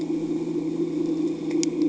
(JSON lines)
{"label": "anthrophony, boat engine", "recorder": "HydroMoth"}